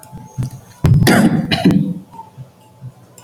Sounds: Cough